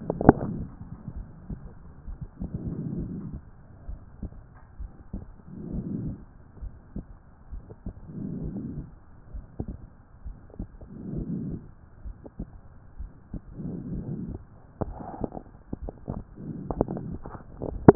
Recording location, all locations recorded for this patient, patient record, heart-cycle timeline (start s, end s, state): pulmonary valve (PV)
pulmonary valve (PV)+tricuspid valve (TV)+mitral valve (MV)
#Age: nan
#Sex: Female
#Height: nan
#Weight: nan
#Pregnancy status: True
#Murmur: Absent
#Murmur locations: nan
#Most audible location: nan
#Systolic murmur timing: nan
#Systolic murmur shape: nan
#Systolic murmur grading: nan
#Systolic murmur pitch: nan
#Systolic murmur quality: nan
#Diastolic murmur timing: nan
#Diastolic murmur shape: nan
#Diastolic murmur grading: nan
#Diastolic murmur pitch: nan
#Diastolic murmur quality: nan
#Outcome: Normal
#Campaign: 2014 screening campaign
0.00	0.22	unannotated
0.22	0.36	S1
0.36	0.52	systole
0.52	0.68	S2
0.68	1.16	diastole
1.16	1.26	S1
1.26	1.48	systole
1.48	1.58	S2
1.58	2.08	diastole
2.08	2.18	S1
2.18	2.40	systole
2.40	2.50	S2
2.50	2.94	diastole
2.94	3.12	S1
3.12	3.30	systole
3.30	3.40	S2
3.40	3.88	diastole
3.88	4.00	S1
4.00	4.22	systole
4.22	4.32	S2
4.32	4.80	diastole
4.80	4.90	S1
4.90	5.12	systole
5.12	5.22	S2
5.22	5.70	diastole
5.70	5.86	S1
5.86	6.02	systole
6.02	6.16	S2
6.16	6.62	diastole
6.62	6.72	S1
6.72	6.94	systole
6.94	7.04	S2
7.04	7.52	diastole
7.52	7.64	S1
7.64	7.86	systole
7.86	7.94	S2
7.94	8.40	diastole
8.40	8.54	S1
8.54	8.74	systole
8.74	8.82	S2
8.82	9.32	diastole
9.32	9.44	S1
9.44	9.62	systole
9.62	9.74	S2
9.74	10.26	diastole
10.26	10.36	S1
10.36	10.58	systole
10.58	10.68	S2
10.68	11.10	diastole
11.10	11.26	S1
11.26	11.48	systole
11.48	11.60	S2
11.60	12.04	diastole
12.04	12.16	S1
12.16	12.38	systole
12.38	12.48	S2
12.48	12.98	diastole
12.98	13.10	S1
13.10	13.32	systole
13.32	13.42	S2
13.42	13.80	diastole
13.80	14.04	S1
14.04	14.28	systole
14.28	14.38	S2
14.38	14.84	diastole
14.84	14.96	S1
14.96	15.20	systole
15.20	15.30	S2
15.30	15.82	diastole
15.82	15.94	S1
15.94	16.12	systole
16.12	16.22	S2
16.22	16.76	diastole
16.76	16.86	S1
16.86	17.08	systole
17.08	17.16	S2
17.16	17.44	diastole
17.44	17.95	unannotated